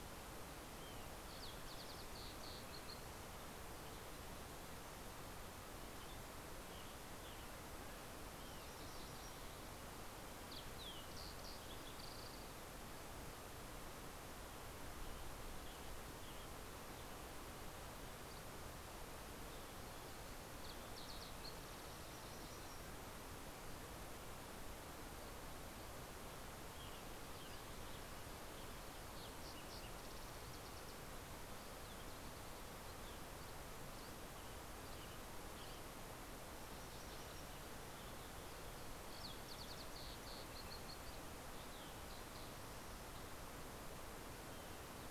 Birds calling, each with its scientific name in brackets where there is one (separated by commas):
Olive-sided Flycatcher (Contopus cooperi), Mountain Quail (Oreortyx pictus), Western Tanager (Piranga ludoviciana), Fox Sparrow (Passerella iliaca), Dusky Flycatcher (Empidonax oberholseri), MacGillivray's Warbler (Geothlypis tolmiei)